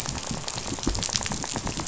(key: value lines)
label: biophony, rattle
recorder: SoundTrap 500